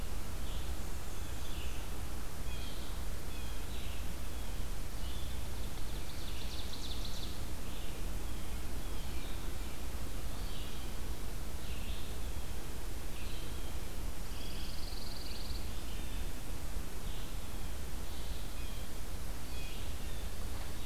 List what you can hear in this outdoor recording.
Black-and-white Warbler, Red-eyed Vireo, Blue Jay, Ovenbird, Pine Warbler